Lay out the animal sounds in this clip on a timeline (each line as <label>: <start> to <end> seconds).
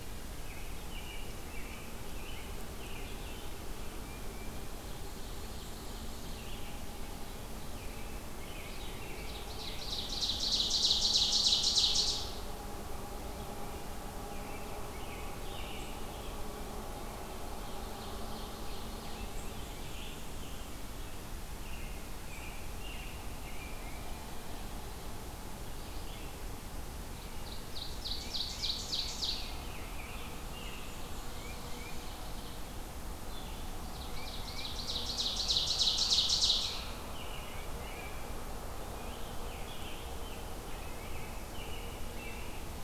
American Robin (Turdus migratorius): 0.0 to 3.3 seconds
Red-eyed Vireo (Vireo olivaceus): 3.0 to 33.7 seconds
Tufted Titmouse (Baeolophus bicolor): 3.9 to 4.7 seconds
Ovenbird (Seiurus aurocapilla): 4.7 to 6.6 seconds
American Robin (Turdus migratorius): 7.6 to 9.9 seconds
Ovenbird (Seiurus aurocapilla): 9.2 to 12.7 seconds
American Robin (Turdus migratorius): 14.4 to 16.3 seconds
Ovenbird (Seiurus aurocapilla): 17.4 to 19.4 seconds
Scarlet Tanager (Piranga olivacea): 19.0 to 20.9 seconds
American Robin (Turdus migratorius): 21.6 to 23.8 seconds
Tufted Titmouse (Baeolophus bicolor): 23.4 to 24.3 seconds
Ovenbird (Seiurus aurocapilla): 27.0 to 29.6 seconds
Tufted Titmouse (Baeolophus bicolor): 28.1 to 28.7 seconds
American Robin (Turdus migratorius): 28.5 to 31.0 seconds
Black-and-white Warbler (Mniotilta varia): 30.4 to 32.2 seconds
Ovenbird (Seiurus aurocapilla): 30.9 to 32.7 seconds
Tufted Titmouse (Baeolophus bicolor): 31.3 to 32.1 seconds
Ovenbird (Seiurus aurocapilla): 33.7 to 37.2 seconds
Tufted Titmouse (Baeolophus bicolor): 34.0 to 34.8 seconds
American Robin (Turdus migratorius): 36.6 to 38.4 seconds
Scarlet Tanager (Piranga olivacea): 38.8 to 40.6 seconds
American Robin (Turdus migratorius): 40.7 to 42.8 seconds